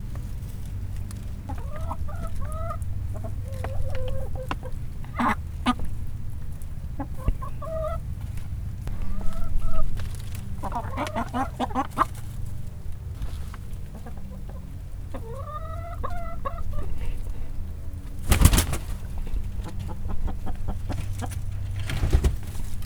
does the chicken make a sound other than flapping?
yes